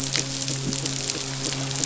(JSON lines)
{"label": "biophony", "recorder": "SoundTrap 500"}
{"label": "biophony, midshipman", "recorder": "SoundTrap 500"}